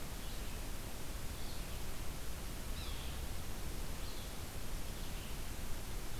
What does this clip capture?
Red-eyed Vireo, Yellow-bellied Sapsucker